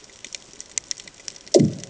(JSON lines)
{"label": "anthrophony, bomb", "recorder": "HydroMoth"}